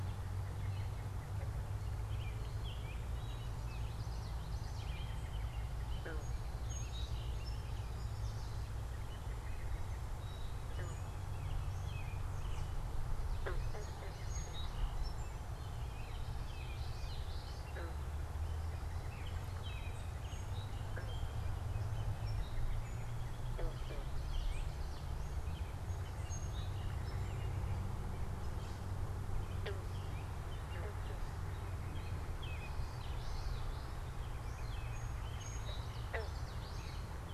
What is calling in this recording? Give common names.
American Robin, Common Yellowthroat, Song Sparrow